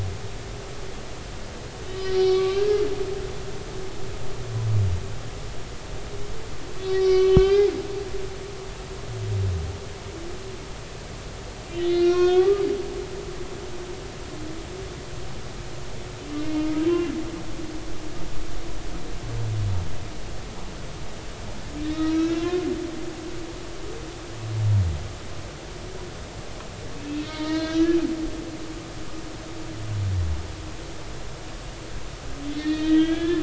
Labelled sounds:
1.8	2.8	humpback whale, 1.1 to 4.2 kHz
6.8	7.7	humpback whale, 1.1 to 6.1 kHz
11.7	12.6	humpback whale, 0.99 to 5.8 kHz
16.3	16.7	humpback whale, 2.0 to 2.5 kHz
21.8	22.6	humpback whale, 0.99 to 4.0 kHz
23.4	23.7	humpback whale, 1.3 to 1.5 kHz
27.2	28.0	humpback whale, 0.90 to 4.2 kHz
32.6	33.4	humpback whale, 1.5 to 4.7 kHz

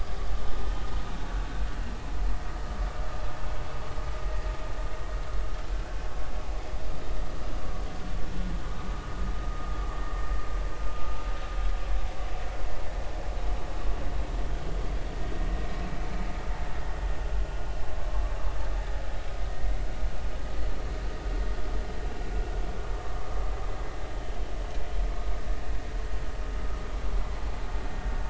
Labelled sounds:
4.2	4.5	vessel noise, 1.8 to 1.9 kHz

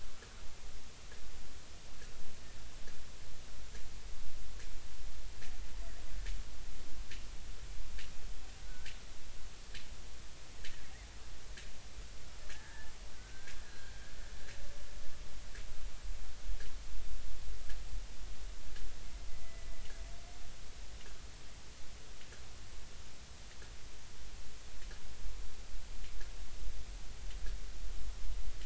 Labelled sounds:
8.7	8.9	killer whale, Bigg's (transient), 1.4 to 1.9 kHz
12.5	13.9	killer whale, Bigg's (transient), 1.4 to 1.9 kHz
19.3	19.7	killer whale, Bigg's (transient), 1.9 to 2.1 kHz

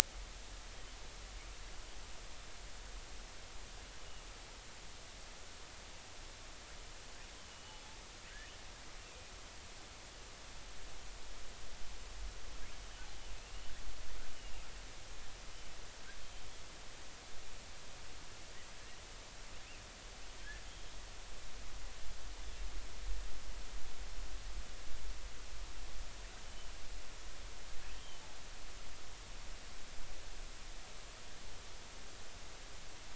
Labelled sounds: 7.5	7.8	killer whale, southern resident, J clan, L pod, call S02iii, 2.8 to 3.0 kHz
14.3	14.6	killer whale, southern resident, J clan, L pod, call S02iii, 2.7 to 3.0 kHz
20.7	20.9	killer whale, southern resident, J clan, L pod, call S02iii, 3.1 to 3.4 kHz
26.4	26.7	killer whale, southern resident, J clan, L pod, call S02iii, 3.0 to 3.1 kHz
28.0	28.2	killer whale, southern resident, J clan, L pod, call S02iii, 3.0 to 3.3 kHz

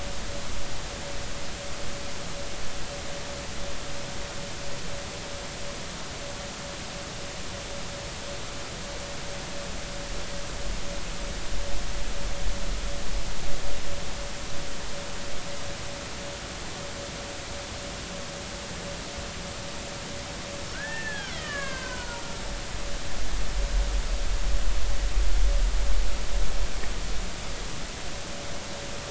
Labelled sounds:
20.7	22.2	killer whale, Bigg's (transient), 0.90 to 3.5 kHz

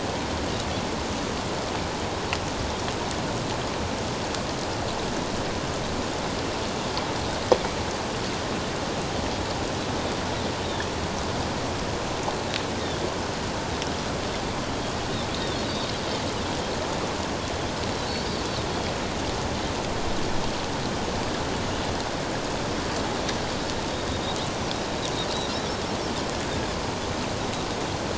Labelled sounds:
15.3	15.6	Pacific white-sided dolphin, 3.2 to 3.8 kHz

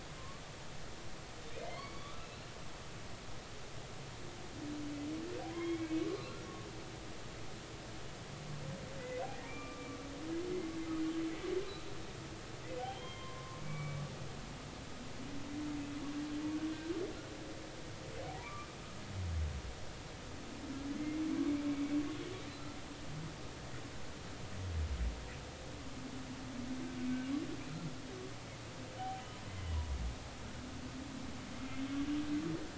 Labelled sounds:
1.6	2.5	humpback whale, 0.99 to 4.6 kHz
5.5	6.4	humpback whale, 0.96 to 4.2 kHz
9.3	9.9	humpback whale, 1.1 to 2.4 kHz
12.8	14.0	humpback whale, 0.80 to 3.3 kHz
18.4	18.7	humpback whale, 1.1 to 1.2 kHz
21.0	21.2	humpback whale, 2.0 to 2.2 kHz
27.0	27.3	humpback whale, 2.2 to 2.3 kHz
29.6	29.9	humpback whale, 2.9 to 3.0 kHz

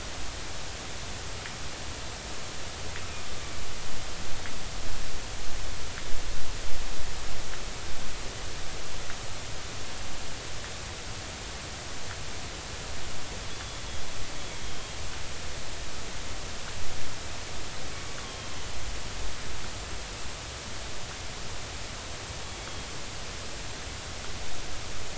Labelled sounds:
13.5	13.8	killer whale, 3.3 to 3.5 kHz
14.6	15.0	killer whale, 3.2 to 3.3 kHz
18.2	18.5	killer whale, 3.1 to 3.4 kHz

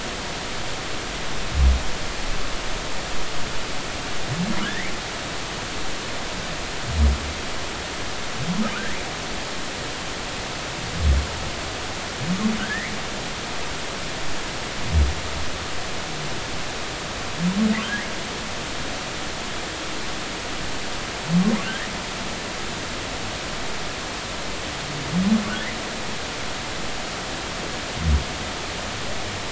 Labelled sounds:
4.6	4.9	humpback whale, 1.6 to 2.4 kHz
8.7	9.0	humpback whale, 1.3 to 2.1 kHz
12.6	12.9	humpback whale, 1.3 to 2.3 kHz
17.8	18.1	humpback whale, 1.3 to 1.7 kHz

